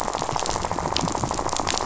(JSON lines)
{"label": "biophony, rattle", "recorder": "SoundTrap 500"}